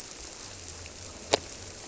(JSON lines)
{"label": "biophony", "recorder": "SoundTrap 300"}